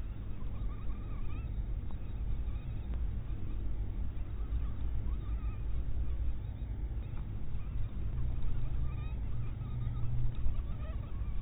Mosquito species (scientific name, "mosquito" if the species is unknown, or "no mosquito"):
mosquito